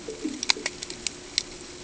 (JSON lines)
{"label": "ambient", "recorder": "HydroMoth"}